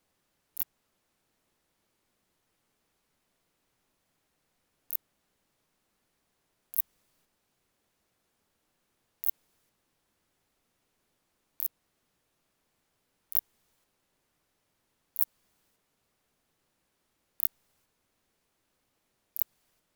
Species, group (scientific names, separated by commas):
Phaneroptera nana, Orthoptera